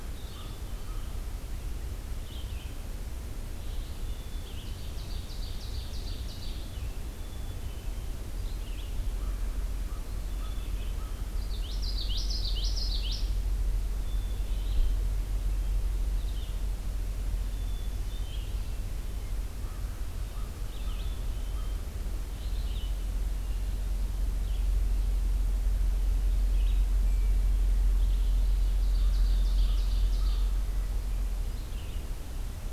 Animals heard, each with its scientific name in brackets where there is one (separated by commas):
Ovenbird (Seiurus aurocapilla), Red-eyed Vireo (Vireo olivaceus), Black-capped Chickadee (Poecile atricapillus), Common Yellowthroat (Geothlypis trichas), American Crow (Corvus brachyrhynchos)